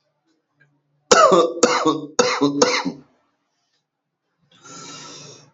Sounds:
Cough